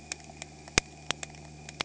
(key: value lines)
label: anthrophony, boat engine
recorder: HydroMoth